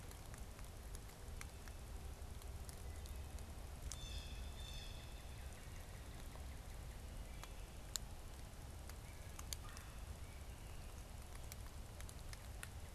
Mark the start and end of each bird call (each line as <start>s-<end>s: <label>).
3.8s-5.4s: Blue Jay (Cyanocitta cristata)
4.2s-7.2s: Northern Cardinal (Cardinalis cardinalis)
9.5s-10.0s: Red-bellied Woodpecker (Melanerpes carolinus)